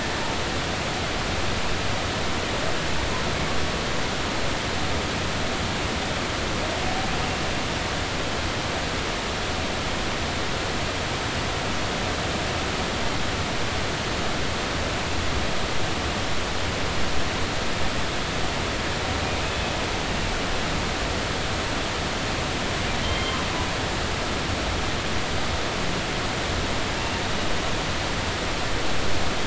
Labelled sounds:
23.0	23.4	humpback whale, 2.1 to 3.3 kHz

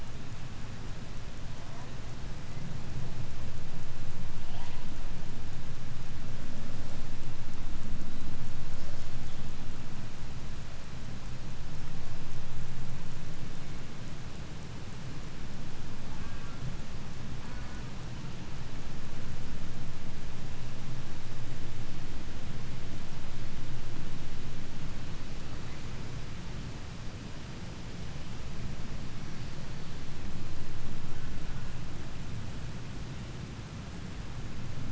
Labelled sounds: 16.0	16.8	killer whale, southern resident, J pod, call S04, 0.31 to 3.0 kHz
17.4	18.1	killer whale, southern resident, J pod, call S04, 0.37 to 2.5 kHz
30.8	31.9	killer whale, 0.71 to 2.2 kHz

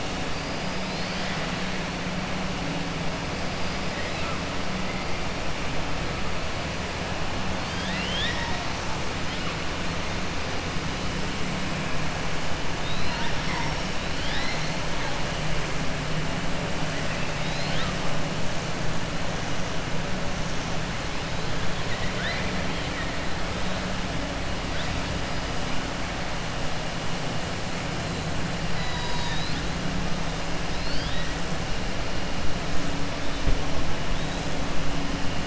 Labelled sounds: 3.9	4.4	killer whale, 1.1 to 4.6 kHz
7.6	8.9	killer whale, 0.94 to 6.2 kHz
12.7	13.3	killer whale, 0.93 to 5.1 kHz
21.8	23.1	killer whale, 0.74 to 4.6 kHz
28.7	29.7	killer whale, 0.95 to 6.8 kHz

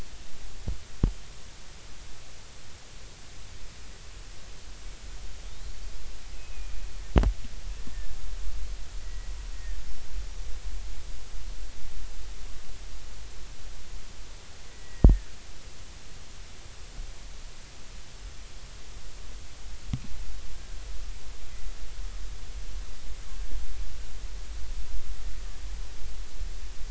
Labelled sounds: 6.3	6.7	killer whale, Bigg's (transient), 2.4 to 2.7 kHz
9.0	10.1	killer whale, Bigg's (transient), 1.7 to 5.6 kHz
14.7	15.3	killer whale, Bigg's (transient), 1.6 to 2.0 kHz

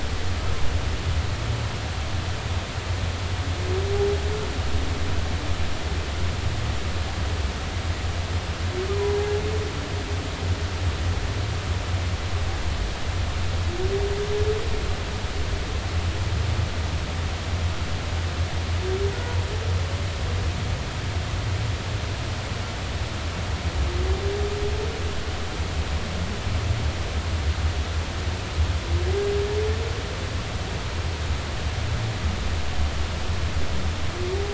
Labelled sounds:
8.9	9.2	humpback whale, 0.93 to 1.0 kHz

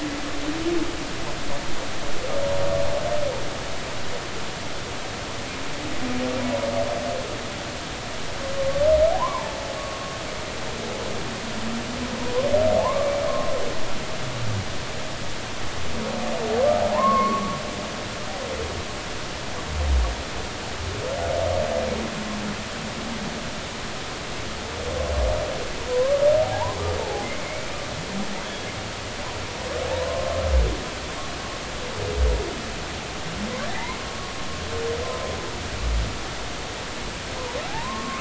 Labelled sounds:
8.6	8.8	humpback whale, 1.1 to 1.2 kHz
9.1	9.6	humpback whale, 0.80 to 1.2 kHz
12.8	13.5	humpback whale, 0.80 to 1.2 kHz
16.9	17.6	humpback whale, 0.80 to 1.2 kHz
25.9	27.7	humpback whale, 0.80 to 2.4 kHz
29.9	30.3	humpback whale, 0.86 to 1.1 kHz
33.7	34.3	humpback whale, 1.0 to 2.3 kHz
35.0	35.3	humpback whale, 0.99 to 1.1 kHz
37.7	38.2	humpback whale, 0.80 to 1.2 kHz

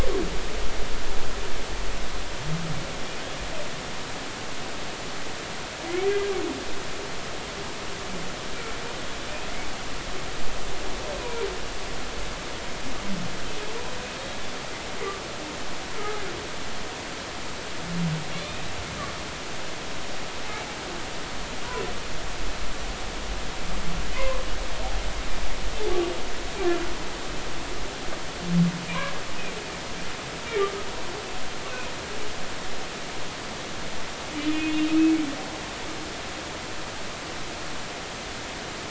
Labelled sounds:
11.2	11.5	humpback whale, 0.90 to 2.5 kHz
15.9	16.2	humpback whale, 1.2 to 1.4 kHz
18.3	18.7	humpback whale, 2.1 to 4.0 kHz
24.1	24.4	humpback whale, 0.96 to 2.2 kHz
28.9	29.1	humpback whale, 2.2 to 2.5 kHz
34.4	35.1	humpback whale, 2.5 to 3.2 kHz

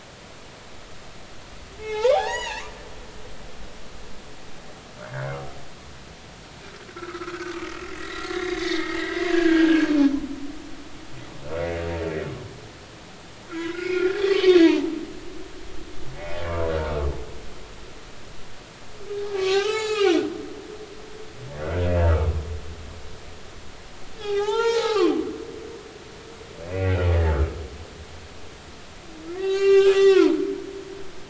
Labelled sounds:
1.8	2.6	humpback whale, 0.80 to 7.0 kHz
5.0	5.4	humpback whale, 1.1 to 1.8 kHz
6.9	7.6	humpback whale, 1.2 to 1.6 kHz
7.9	9.9	humpback whale, 1.5 to 3.9 kHz
13.5	14.9	humpback whale, 0.83 to 5.1 kHz
19.3	20.2	humpback whale, 0.80 to 7.2 kHz
24.2	25.3	humpback whale, 0.80 to 7.0 kHz
26.7	27.6	humpback whale, 1.2 to 2.7 kHz
29.3	30.4	humpback whale, 0.86 to 7.1 kHz

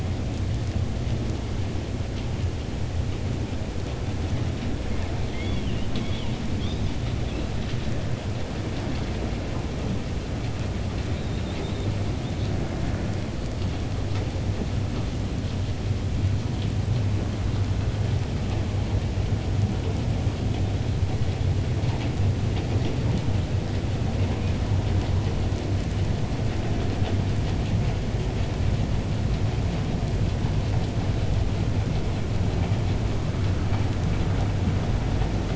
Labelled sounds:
5.2	6.4	killer whale, 1.9 to 5.1 kHz

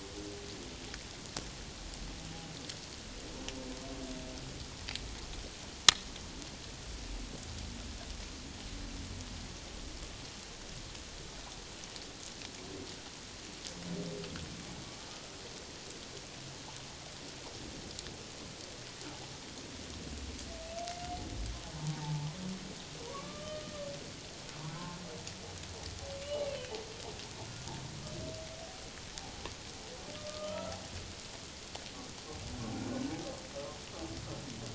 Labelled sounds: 21.9	22.3	humpback whale, 0.78 to 1.0 kHz
23.1	23.7	humpback whale, 1.0 to 1.3 kHz
24.6	25.0	humpback whale, 0.81 to 1.2 kHz
26.5	26.7	humpback whale, 2.5 to 2.8 kHz
30.2	30.8	humpback whale, 1.2 to 1.4 kHz

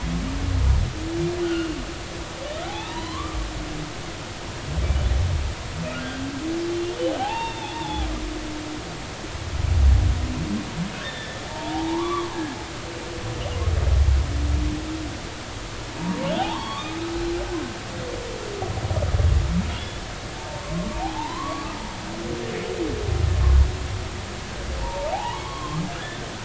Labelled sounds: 1.4	1.8	humpback whale, 1.3 to 3.3 kHz
2.6	3.4	humpback whale, 0.80 to 4.2 kHz
7.2	8.1	humpback whale, 0.80 to 3.7 kHz
11.0	12.3	humpback whale, 0.80 to 3.7 kHz
16.0	17.0	humpback whale, 0.80 to 4.5 kHz
19.7	20.0	humpback whale, 3.2 to 3.5 kHz
20.9	21.8	humpback whale, 0.80 to 1.3 kHz
24.8	25.8	humpback whale, 0.80 to 3.4 kHz

